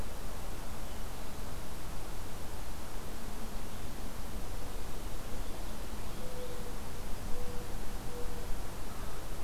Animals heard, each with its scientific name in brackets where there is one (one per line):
Mourning Dove (Zenaida macroura)